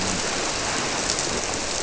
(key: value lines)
label: biophony
recorder: SoundTrap 300